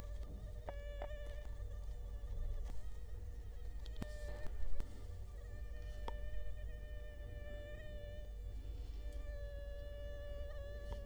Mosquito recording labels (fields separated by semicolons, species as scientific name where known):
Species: Culex quinquefasciatus; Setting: cup